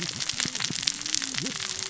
{"label": "biophony, cascading saw", "recorder": "SoundTrap 600 or HydroMoth"}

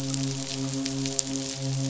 {"label": "biophony, midshipman", "recorder": "SoundTrap 500"}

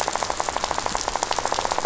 {"label": "biophony, rattle", "recorder": "SoundTrap 500"}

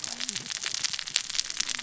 {"label": "biophony, cascading saw", "recorder": "SoundTrap 600 or HydroMoth"}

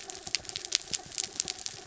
{"label": "anthrophony, mechanical", "recorder": "SoundTrap 300"}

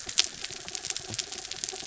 {"label": "anthrophony, mechanical", "recorder": "SoundTrap 300"}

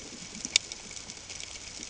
{"label": "ambient", "recorder": "HydroMoth"}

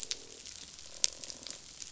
{"label": "biophony, croak", "recorder": "SoundTrap 500"}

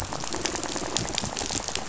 {"label": "biophony, rattle", "recorder": "SoundTrap 500"}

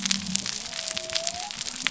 {"label": "biophony", "recorder": "SoundTrap 300"}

